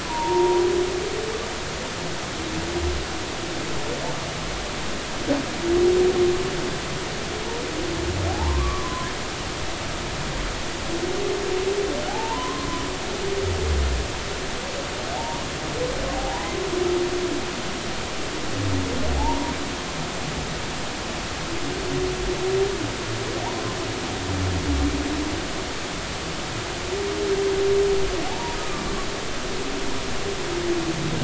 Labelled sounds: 0.1	0.6	humpback whale, 0.86 to 1.0 kHz
8.3	9.1	humpback whale, 0.80 to 1.2 kHz
12.1	12.7	humpback whale, 0.80 to 1.1 kHz
15.1	16.5	humpback whale, 0.80 to 1.1 kHz
19.2	19.5	humpback whale, 0.80 to 1.0 kHz
28.3	28.6	humpback whale, 0.80 to 0.99 kHz

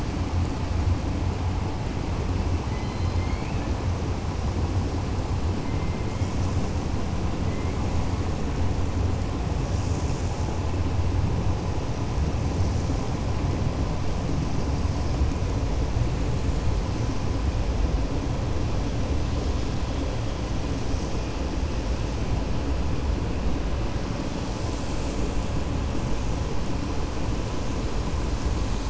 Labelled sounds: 2.6	3.7	killer whale, 1.7 to 4.3 kHz

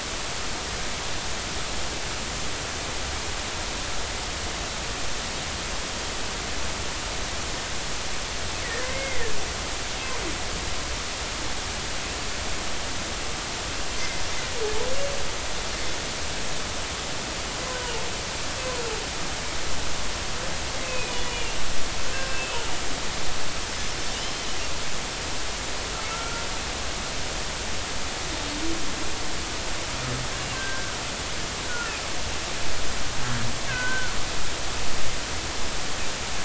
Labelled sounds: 8.8	9.3	humpback whale, 1.7 to 2.2 kHz
20.8	21.6	humpback whale, 2.4 to 2.9 kHz
22.1	22.6	humpback whale, 1.5 to 2.7 kHz
24.1	24.6	humpback whale, 2.8 to 3.2 kHz
26.1	26.4	humpback whale, 1.3 to 1.4 kHz
30.5	30.9	humpback whale, 1.5 to 1.6 kHz
33.7	34.2	humpback whale, 1.3 to 1.7 kHz

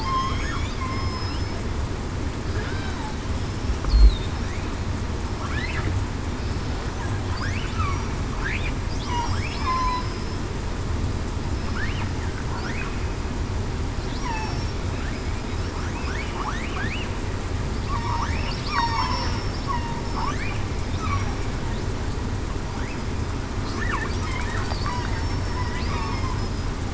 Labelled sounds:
0.0	1.1	killer whale, southern resident, 2.0 to 3.5 kHz
9.3	9.9	killer whale, southern resident, 5.1 to 5.2 kHz
14.2	14.6	killer whale, southern resident, 0.70 to 1.1 kHz
18.6	19.4	killer whale, southern resident, 0.87 to 5.6 kHz
21.1	21.4	killer whale, southern resident, 5.6 to 5.8 kHz
25.1	25.7	killer whale, southern resident, 5.3 to 5.5 kHz

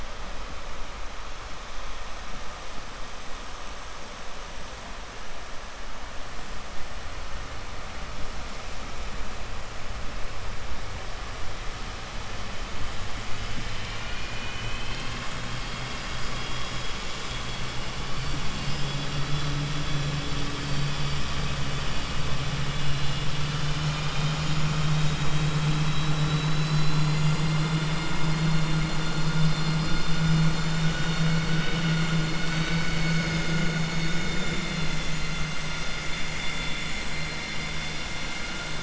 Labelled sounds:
13.6	15.2	vessel noise, 1.4 to 4.7 kHz
18.4	19.5	vessel noise, 2.8 to 5.1 kHz
34.4	35.5	vessel noise, 3.4 to 7.7 kHz

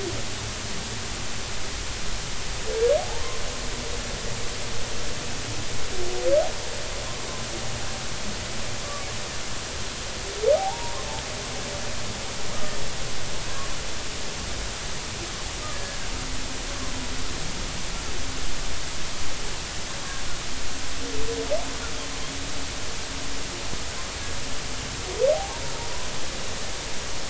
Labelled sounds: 10.5	11.0	humpback whale, 0.80 to 1.1 kHz
15.7	16.0	humpback whale, 1.6 to 1.8 kHz
25.3	25.6	humpback whale, 0.80 to 1.1 kHz

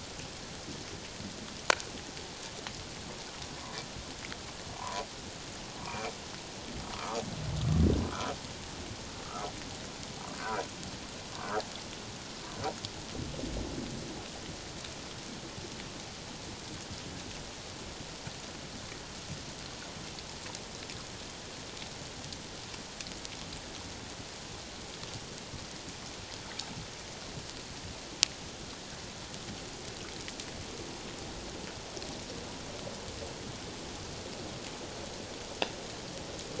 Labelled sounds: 4.8	6.2	humpback whale, 0.91 to 2.5 kHz
6.9	7.2	humpback whale, 0.88 to 1.4 kHz
8.1	8.3	humpback whale, 1.2 to 1.5 kHz
9.2	9.5	humpback whale, 1.1 to 1.4 kHz
10.3	10.7	humpback whale, 1.2 to 1.7 kHz
11.4	11.7	humpback whale, 1.2 to 1.8 kHz

